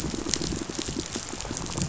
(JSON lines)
{"label": "biophony, pulse", "recorder": "SoundTrap 500"}